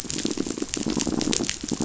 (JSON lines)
{"label": "biophony, pulse", "recorder": "SoundTrap 500"}